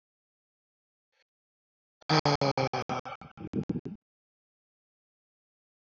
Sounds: Sigh